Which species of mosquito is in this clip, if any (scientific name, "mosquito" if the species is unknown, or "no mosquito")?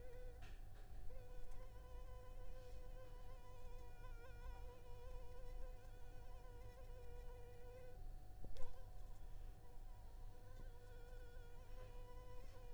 Anopheles arabiensis